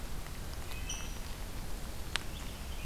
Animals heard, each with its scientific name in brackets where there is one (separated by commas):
Red-breasted Nuthatch (Sitta canadensis), Rose-breasted Grosbeak (Pheucticus ludovicianus)